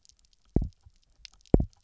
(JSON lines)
{"label": "biophony, double pulse", "recorder": "SoundTrap 300"}